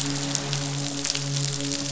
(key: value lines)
label: biophony, midshipman
recorder: SoundTrap 500